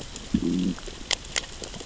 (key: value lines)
label: biophony, growl
recorder: SoundTrap 600 or HydroMoth